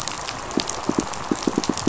{"label": "biophony, pulse", "recorder": "SoundTrap 500"}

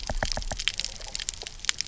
{"label": "biophony, knock", "recorder": "SoundTrap 300"}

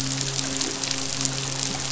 {"label": "biophony, midshipman", "recorder": "SoundTrap 500"}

